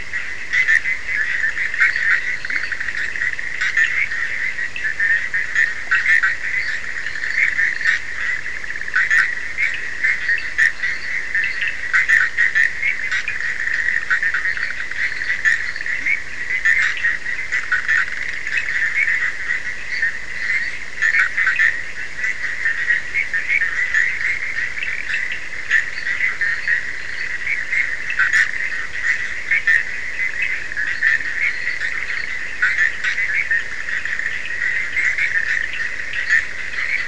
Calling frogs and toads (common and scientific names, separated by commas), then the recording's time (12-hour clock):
Bischoff's tree frog (Boana bischoffi), Cochran's lime tree frog (Sphaenorhynchus surdus), fine-lined tree frog (Boana leptolineata), Leptodactylus latrans
1:30am